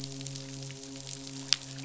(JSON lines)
{"label": "biophony, midshipman", "recorder": "SoundTrap 500"}